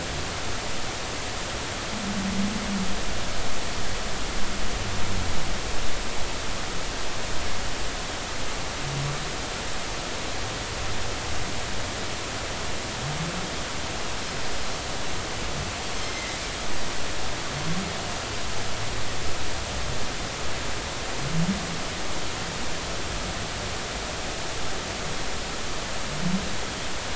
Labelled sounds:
16.0	16.4	Pacific white-sided dolphin, 1.9 to 2.1 kHz

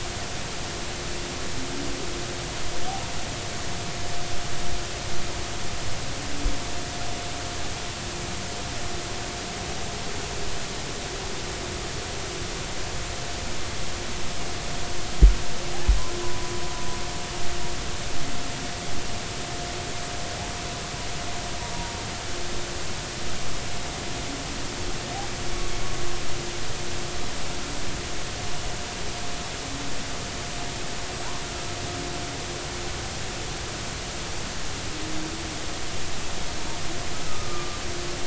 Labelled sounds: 16.2	16.5	humpback whale, 0.93 to 1.1 kHz
37.2	37.8	humpback whale, 1.1 to 1.4 kHz

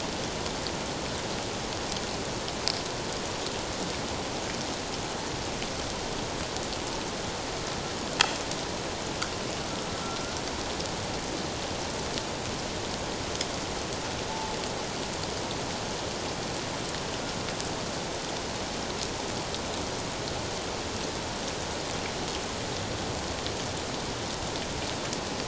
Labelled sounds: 14.3	14.6	humpback whale, 0.84 to 0.94 kHz

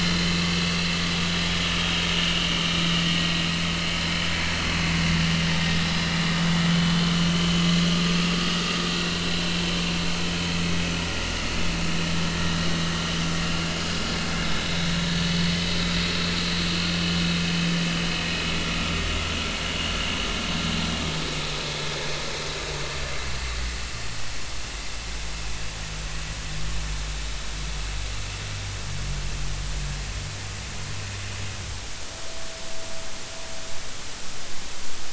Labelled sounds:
0.0	0.3	vessel noise, 4.0 to 4.2 kHz
0.6	0.9	vessel noise, 4.4 to 4.6 kHz
6.7	7.0	vessel noise, 2.9 to 3.1 kHz
8.9	9.2	vessel noise, 3.9 to 4.0 kHz

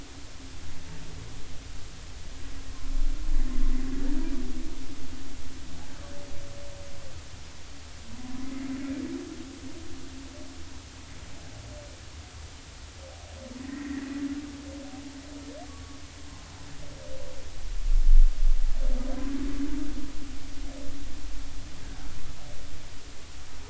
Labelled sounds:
13.6	14.0	humpback whale, 1.7 to 2.1 kHz
15.7	16.0	humpback whale, 1.1 to 1.2 kHz

